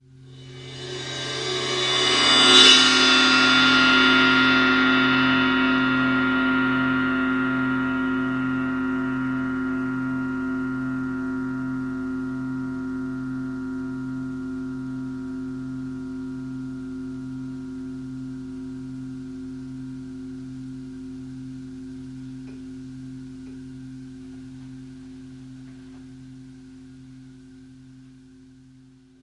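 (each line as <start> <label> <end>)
0.0 A cymbal swells. 26.1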